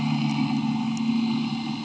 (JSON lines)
{"label": "anthrophony, boat engine", "recorder": "HydroMoth"}